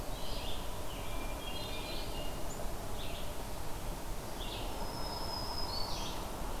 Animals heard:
Hermit Thrush (Catharus guttatus), Black-throated Green Warbler (Setophaga virens), Red-eyed Vireo (Vireo olivaceus)

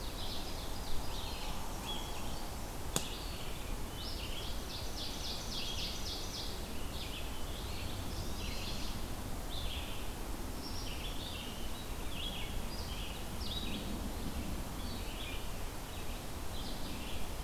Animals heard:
Black-throated Green Warbler (Setophaga virens), Red-eyed Vireo (Vireo olivaceus), Chestnut-sided Warbler (Setophaga pensylvanica), Eastern Wood-Pewee (Contopus virens), Ovenbird (Seiurus aurocapilla)

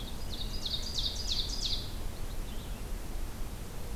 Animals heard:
Purple Finch (Haemorhous purpureus), Ovenbird (Seiurus aurocapilla)

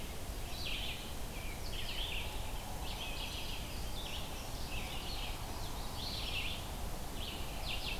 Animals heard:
Red-eyed Vireo (Vireo olivaceus), Indigo Bunting (Passerina cyanea)

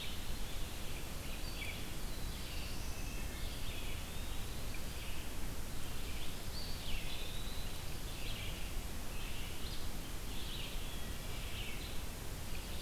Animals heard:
Red-eyed Vireo (Vireo olivaceus), Black-throated Blue Warbler (Setophaga caerulescens), Eastern Wood-Pewee (Contopus virens), Wood Thrush (Hylocichla mustelina)

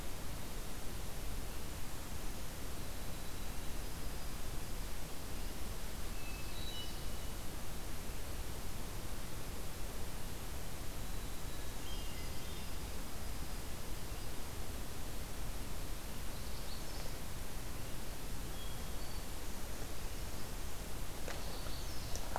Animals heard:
White-throated Sparrow (Zonotrichia albicollis), Magnolia Warbler (Setophaga magnolia), Hermit Thrush (Catharus guttatus)

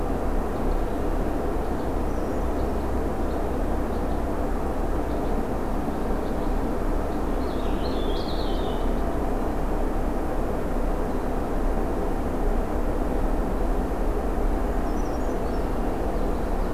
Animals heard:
Red Crossbill (Loxia curvirostra), Brown Creeper (Certhia americana), Purple Finch (Haemorhous purpureus), Common Yellowthroat (Geothlypis trichas)

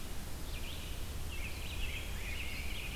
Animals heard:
Rose-breasted Grosbeak (Pheucticus ludovicianus), American Robin (Turdus migratorius), Red-eyed Vireo (Vireo olivaceus)

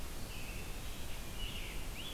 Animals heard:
Scarlet Tanager (Piranga olivacea), American Robin (Turdus migratorius)

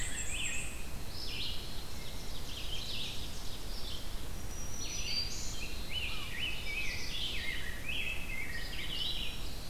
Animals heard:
Dark-eyed Junco (Junco hyemalis), Red-eyed Vireo (Vireo olivaceus), Rose-breasted Grosbeak (Pheucticus ludovicianus), Ovenbird (Seiurus aurocapilla), Black-throated Green Warbler (Setophaga virens), Black-and-white Warbler (Mniotilta varia)

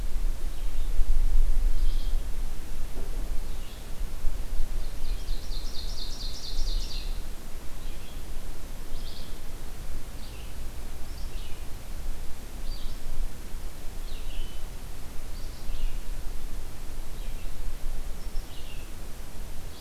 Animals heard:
Ovenbird (Seiurus aurocapilla), Red-eyed Vireo (Vireo olivaceus)

